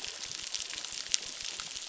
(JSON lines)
{"label": "biophony, crackle", "recorder": "SoundTrap 600"}